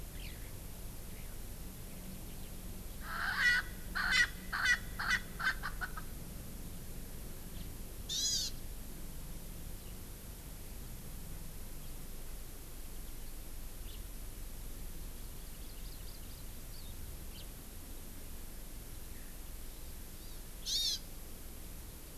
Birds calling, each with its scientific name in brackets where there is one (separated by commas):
Hawaii Amakihi (Chlorodrepanis virens), House Finch (Haemorhous mexicanus), Eurasian Skylark (Alauda arvensis), Erckel's Francolin (Pternistis erckelii), Hawaiian Hawk (Buteo solitarius)